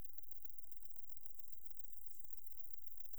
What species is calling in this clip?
Conocephalus fuscus